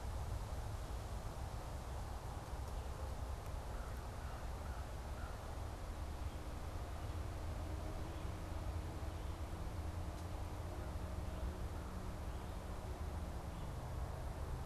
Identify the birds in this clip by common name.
American Crow